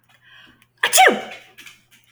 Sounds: Sneeze